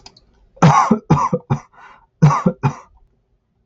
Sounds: Cough